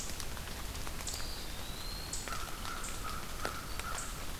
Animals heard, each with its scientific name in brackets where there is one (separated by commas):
American Crow (Corvus brachyrhynchos), Eastern Wood-Pewee (Contopus virens)